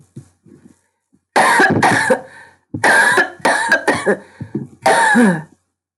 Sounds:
Cough